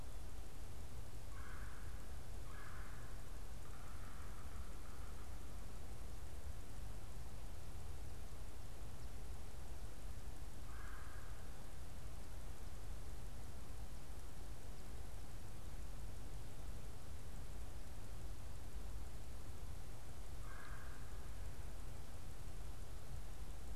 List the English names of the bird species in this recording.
Red-bellied Woodpecker, Yellow-bellied Sapsucker